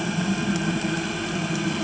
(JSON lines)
{"label": "anthrophony, boat engine", "recorder": "HydroMoth"}